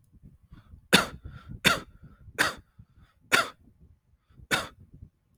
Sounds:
Cough